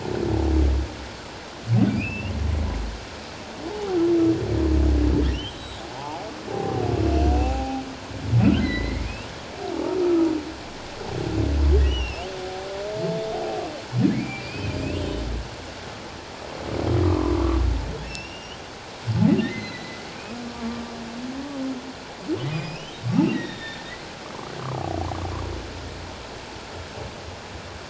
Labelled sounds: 1.9	2.3	humpback whale, 2.3 to 3.0 kHz
3.7	4.0	humpback whale, 0.78 to 0.94 kHz
5.3	7.8	humpback whale, 0.78 to 7.8 kHz
8.4	9.1	humpback whale, 1.3 to 4.2 kHz
11.8	12.3	humpback whale, 2.6 to 3.3 kHz
14.1	15.0	humpback whale, 1.9 to 2.9 kHz
17.0	17.6	humpback whale, 0.94 to 1.2 kHz
18.0	18.6	humpback whale, 2.6 to 5.7 kHz
19.5	20.8	humpback whale, 1.1 to 4.2 kHz
22.5	24.1	humpback whale, 1.7 to 5.2 kHz

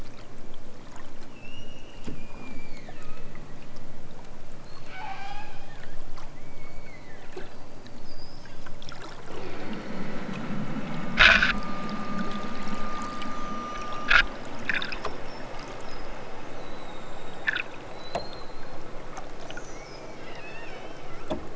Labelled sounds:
1.3	3.5	killer whale, southern Alaska resident, 0.92 to 8.0 kHz
4.5	5.8	killer whale, southern Alaska resident, 0.51 to 8.0 kHz
6.2	7.6	killer whale, southern Alaska resident, 1.0 to 4.8 kHz

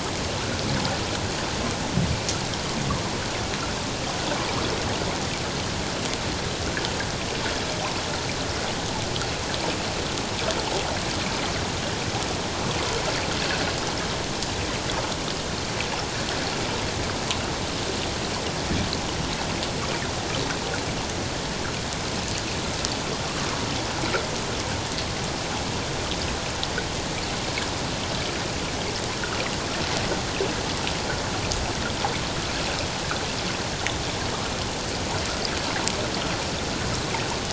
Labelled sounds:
13.4	13.7	water noise, 1.4 to 1.8 kHz

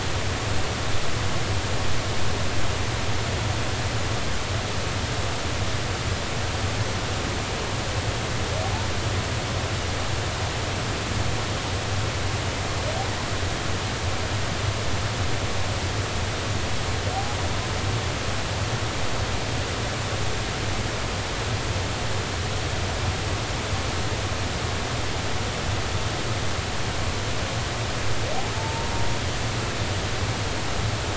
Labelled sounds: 28.5	28.9	humpback whale, 0.86 to 0.96 kHz

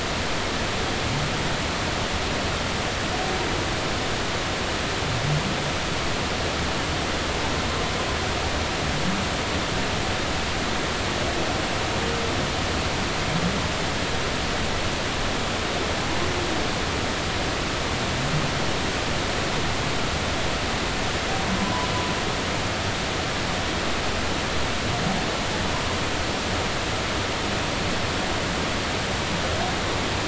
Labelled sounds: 21.6	21.9	humpback whale, 0.96 to 1.1 kHz

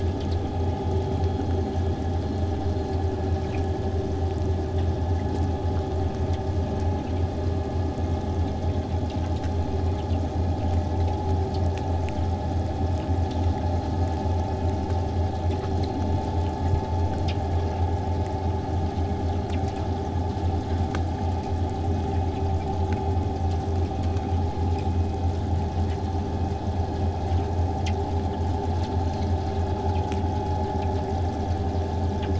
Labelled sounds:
27.4	32.3	vessel noise, 0 to 8.0 kHz

